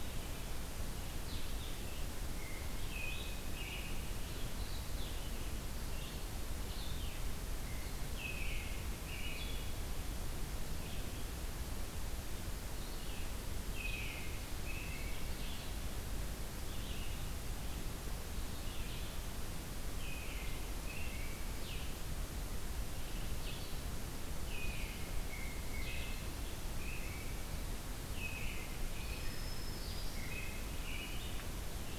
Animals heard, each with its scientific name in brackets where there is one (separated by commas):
Blue-headed Vireo (Vireo solitarius), Black-throated Green Warbler (Setophaga virens), American Robin (Turdus migratorius)